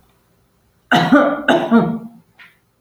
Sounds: Cough